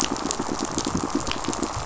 {"label": "biophony, pulse", "recorder": "SoundTrap 500"}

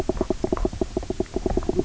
{"label": "biophony, knock croak", "recorder": "SoundTrap 300"}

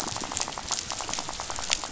{"label": "biophony, rattle", "recorder": "SoundTrap 500"}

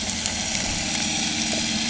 {"label": "anthrophony, boat engine", "recorder": "HydroMoth"}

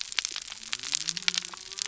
{"label": "biophony", "recorder": "SoundTrap 300"}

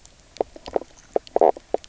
{"label": "biophony, knock croak", "recorder": "SoundTrap 300"}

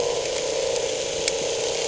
{"label": "anthrophony, boat engine", "recorder": "HydroMoth"}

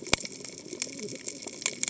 {"label": "biophony, cascading saw", "recorder": "HydroMoth"}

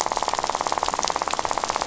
{"label": "biophony, rattle", "recorder": "SoundTrap 500"}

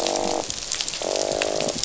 {"label": "biophony", "recorder": "SoundTrap 500"}
{"label": "biophony, croak", "recorder": "SoundTrap 500"}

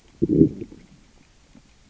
{"label": "biophony, growl", "recorder": "SoundTrap 600 or HydroMoth"}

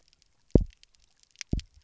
{"label": "biophony, double pulse", "recorder": "SoundTrap 300"}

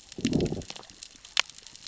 {"label": "biophony, growl", "recorder": "SoundTrap 600 or HydroMoth"}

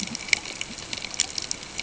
{"label": "ambient", "recorder": "HydroMoth"}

